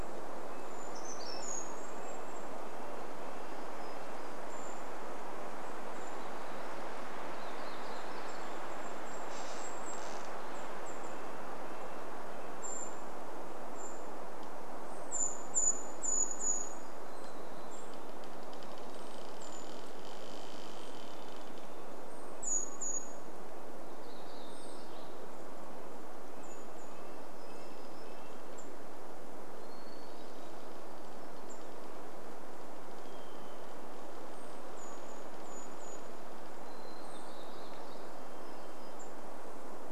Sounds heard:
unidentified bird chip note, Brown Creeper call, unidentified sound, warbler song, Golden-crowned Kinglet song, tree creak, Red-breasted Nuthatch song, Golden-crowned Kinglet call, Varied Thrush song, Hermit Thrush song, Hermit Thrush call

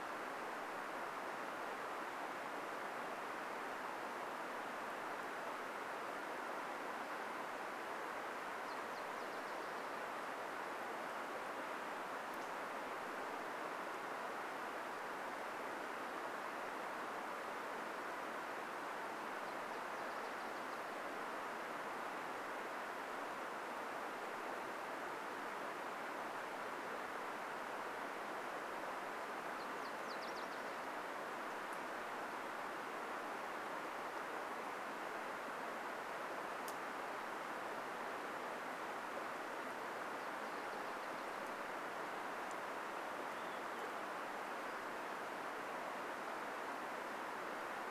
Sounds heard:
Olive-sided Flycatcher song, Nashville Warbler song

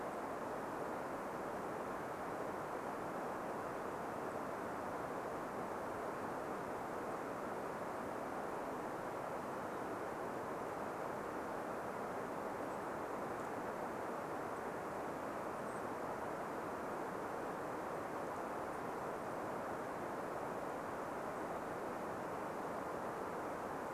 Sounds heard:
unidentified bird chip note, Golden-crowned Kinglet call

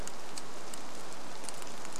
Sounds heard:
rain

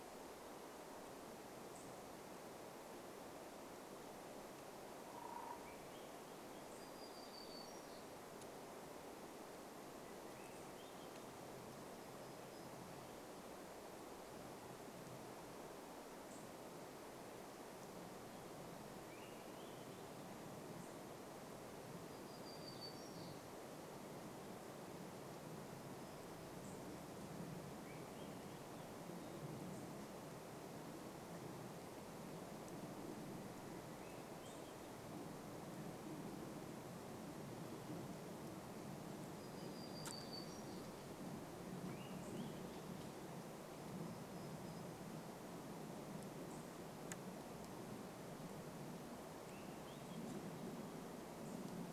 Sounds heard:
unidentified bird chip note, warbler song, Swainson's Thrush song, woodpecker drumming

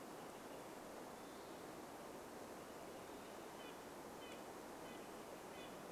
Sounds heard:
Red-breasted Nuthatch song, Western Wood-Pewee song

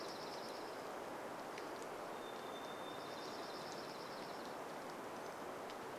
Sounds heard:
rain, Varied Thrush song, warbler song, Dark-eyed Junco song

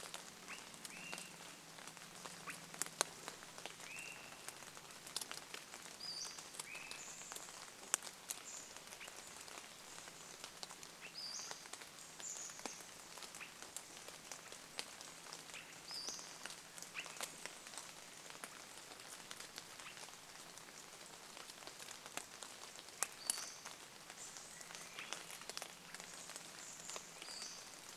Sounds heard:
Swainson's Thrush song, Chestnut-backed Chickadee call, Pacific-slope Flycatcher call, rain, vehicle engine, Swainson's Thrush call

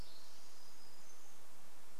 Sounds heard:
warbler song, Spotted Towhee song

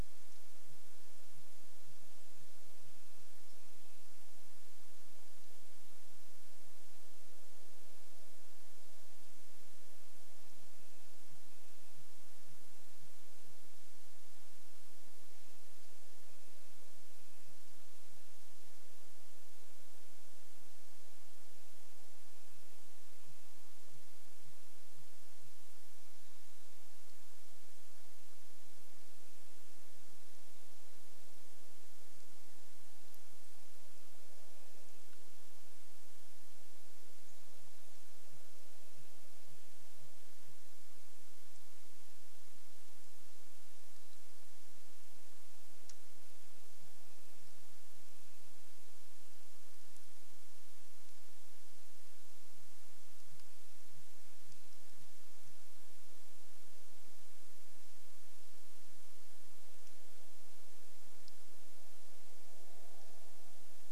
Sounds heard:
Red-breasted Nuthatch song, Sooty Grouse song, woodpecker drumming, unidentified bird chip note

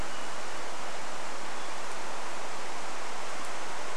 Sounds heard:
Varied Thrush song

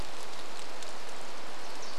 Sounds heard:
rain, Wilson's Warbler song

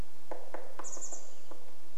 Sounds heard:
woodpecker drumming, Chestnut-backed Chickadee call

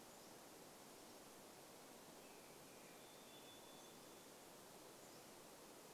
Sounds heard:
American Robin song, Varied Thrush song, Pacific-slope Flycatcher song

